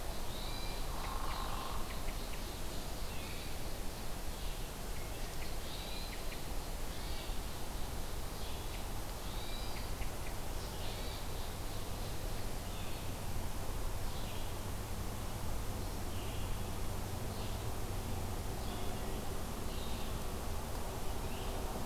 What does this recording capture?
Red-eyed Vireo, Hermit Thrush, Hairy Woodpecker